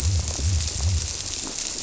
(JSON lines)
{"label": "biophony", "recorder": "SoundTrap 300"}